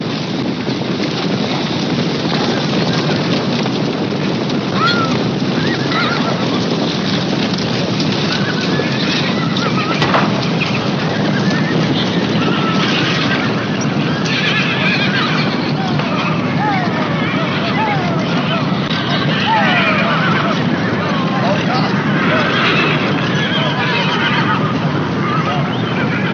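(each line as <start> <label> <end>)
0.0 Horse-drawn carriages rolling loudly on a street. 26.3
4.7 Horses neigh repeatedly. 7.6
8.3 Horses neigh repeatedly. 16.5
15.7 People shout loudly in a commanding manner. 23.1
17.9 Horses neigh repeatedly. 26.3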